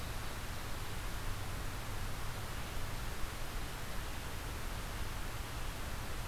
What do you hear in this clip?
forest ambience